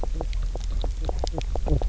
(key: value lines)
label: biophony, knock croak
recorder: SoundTrap 300